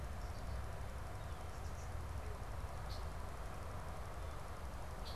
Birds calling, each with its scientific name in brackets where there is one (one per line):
Red-winged Blackbird (Agelaius phoeniceus)